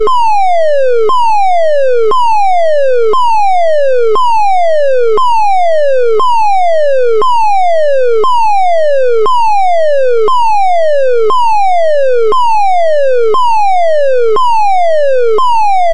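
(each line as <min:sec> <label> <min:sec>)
0:00.1 A fire alarm sounds loudly and repeatedly inside a building. 0:15.9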